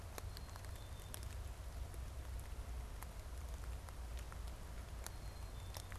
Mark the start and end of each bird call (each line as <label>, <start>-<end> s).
Black-capped Chickadee (Poecile atricapillus), 0.0-1.3 s
Black-capped Chickadee (Poecile atricapillus), 5.1-5.9 s